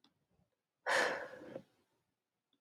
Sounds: Sigh